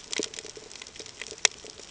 {"label": "ambient", "recorder": "HydroMoth"}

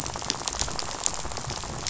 {"label": "biophony, rattle", "recorder": "SoundTrap 500"}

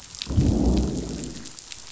{"label": "biophony, growl", "recorder": "SoundTrap 500"}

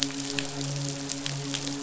{"label": "biophony, midshipman", "recorder": "SoundTrap 500"}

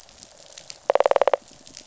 {"label": "biophony, rattle response", "recorder": "SoundTrap 500"}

